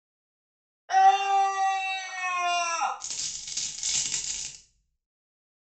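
First someone screams. Then a coin drops.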